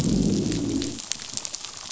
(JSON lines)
{"label": "biophony, growl", "recorder": "SoundTrap 500"}